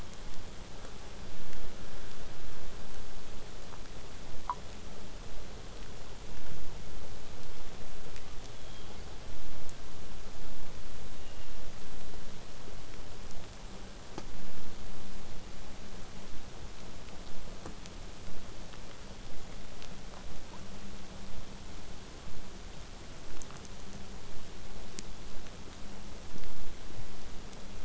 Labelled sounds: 0.0	0.7	killer whale, southern resident, 2.0 to 3.5 kHz
8.5	9.0	killer whale, southern resident, 3.1 to 3.6 kHz
11.1	11.6	killer whale, southern resident, 1.7 to 3.9 kHz

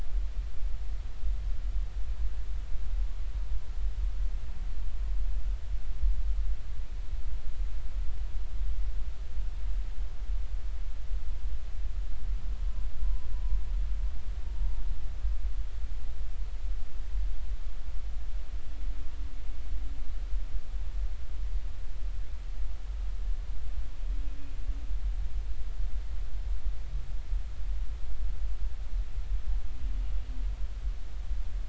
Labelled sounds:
13.0	13.3	humpback whale, 0.93 to 1.1 kHz

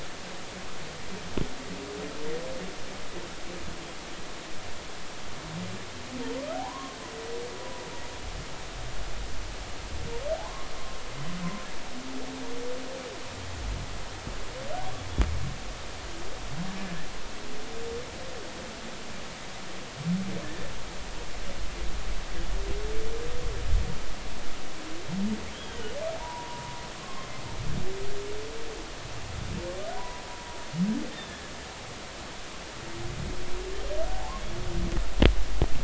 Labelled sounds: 6.5	7.0	humpback whale, 0.80 to 1.3 kHz
10.4	10.7	humpback whale, 0.80 to 1.1 kHz
20.4	20.7	humpback whale, 1.6 to 1.9 kHz
25.5	27.3	humpback whale, 0.83 to 3.4 kHz
29.9	30.2	humpback whale, 0.80 to 1.1 kHz
31.1	31.4	humpback whale, 3.4 to 3.6 kHz
34.1	34.4	humpback whale, 0.80 to 1.1 kHz

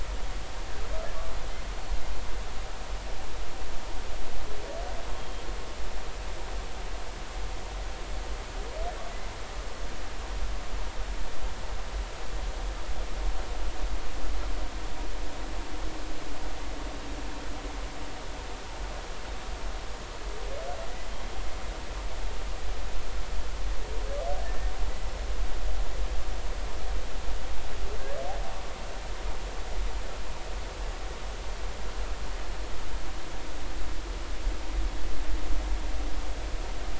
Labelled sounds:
5.2	5.4	humpback whale, 3.1 to 3.3 kHz
24.4	24.7	humpback whale, 1.7 to 1.9 kHz

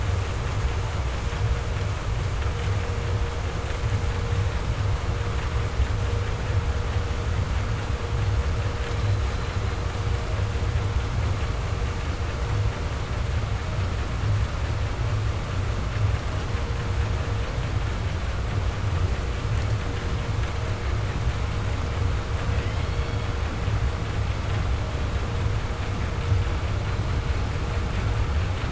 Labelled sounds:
8.7	10.1	killer whale, 2.5 to 5.4 kHz
22.4	23.6	killer whale, southern resident, J pod, call S44, 0.79 to 5.3 kHz

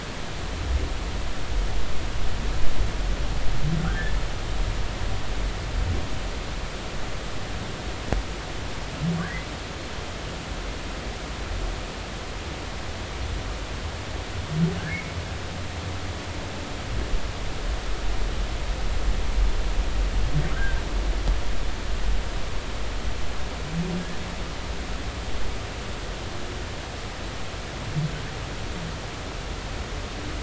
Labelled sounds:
3.8	4.2	humpback whale, 1.2 to 1.9 kHz
20.6	20.8	humpback whale, 1.5 to 1.7 kHz

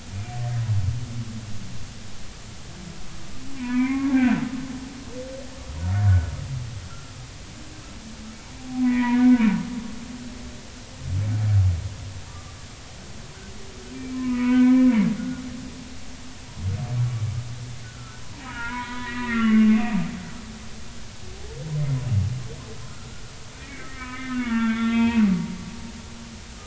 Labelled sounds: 3.6	4.4	humpback whale, 0.93 to 2.6 kHz
6.8	7.1	humpback whale, 1.3 to 1.5 kHz
8.8	9.4	humpback whale, 0.90 to 2.5 kHz
12.3	12.6	humpback whale, 1.1 to 1.2 kHz
13.9	15.4	humpback whale, 0.93 to 2.6 kHz
17.8	20.0	humpback whale, 0.86 to 3.0 kHz
22.8	23.2	humpback whale, 1.2 to 1.5 kHz
23.6	25.3	humpback whale, 0.86 to 3.7 kHz

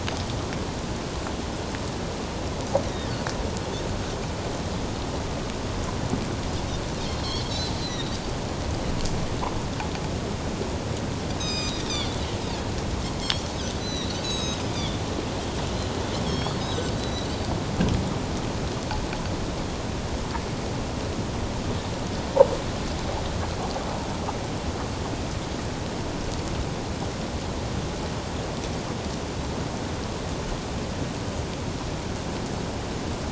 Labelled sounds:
7.2	8.2	Pacific white-sided dolphin, 3.6 to 4.6 kHz
11.4	12.2	Pacific white-sided dolphin, 2.4 to 7.7 kHz
13.2	15.0	Pacific white-sided dolphin, 2.5 to 7.9 kHz
16.2	17.3	Pacific white-sided dolphin, 3.2 to 5.6 kHz

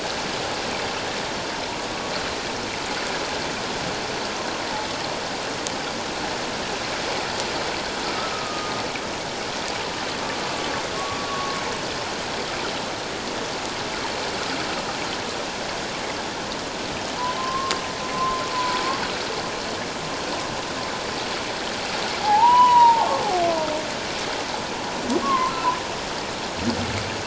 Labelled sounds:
8.3	8.7	humpback whale, 1.2 to 1.3 kHz
11.2	11.6	humpback whale, 1.1 to 1.2 kHz
17.4	17.7	humpback whale, 1.0 to 1.1 kHz
18.1	18.8	humpback whale, 0.91 to 1.1 kHz
22.2	23.2	humpback whale, 0.78 to 3.0 kHz
25.2	25.5	humpback whale, 0.91 to 1.2 kHz

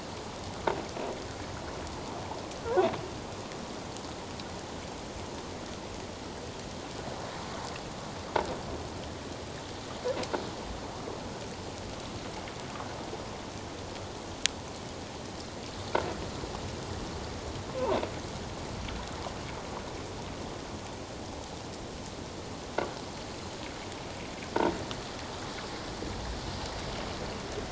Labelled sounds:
17.7	18.0	croaking sound likely from a nearby submerged object, 0.84 to 1.2 kHz

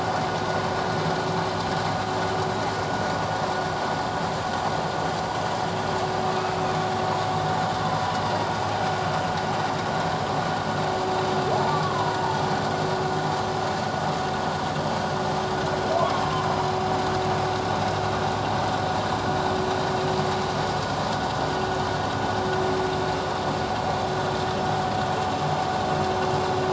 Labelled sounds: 6.4	6.6	humpback whale, 1.2 to 1.4 kHz
11.7	12.2	humpback whale, 0.94 to 1.3 kHz

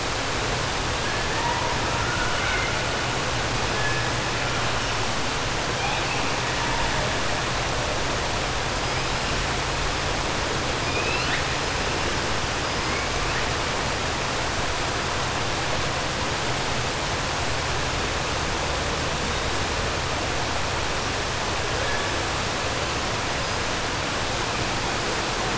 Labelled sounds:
1.9	2.7	killer whale, 0.95 to 3.0 kHz
10.8	11.4	killer whale, 1.5 to 5.1 kHz

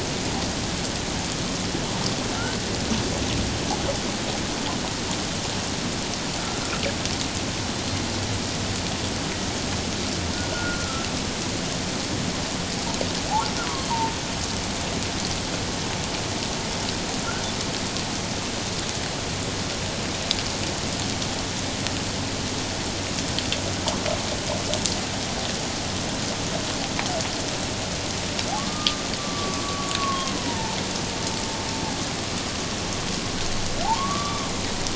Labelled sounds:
10.5	11.1	humpback whale, 1.2 to 1.5 kHz
28.7	30.8	humpback whale, 0.84 to 1.3 kHz
33.8	34.4	humpback whale, 0.78 to 1.3 kHz

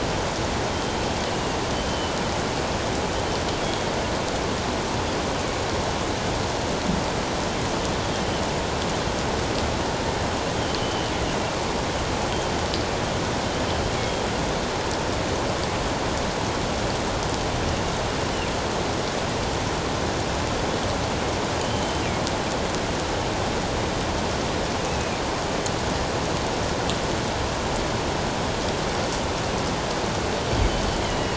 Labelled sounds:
1.9	2.1	killer whale, northern resident, G clan, 3.0 to 3.2 kHz
3.6	3.9	killer whale, northern resident, G clan, 3.2 to 3.4 kHz
10.8	11.1	killer whale, northern resident, G clan, 2.9 to 3.2 kHz
21.6	22.0	killer whale, northern resident, G clan, 3.0 to 3.1 kHz
24.8	25.2	killer whale, northern resident, G clan, 2.3 to 2.7 kHz
30.6	31.3	killer whale, northern resident, G clan, 2.8 to 4.7 kHz

